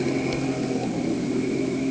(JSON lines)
{"label": "anthrophony, boat engine", "recorder": "HydroMoth"}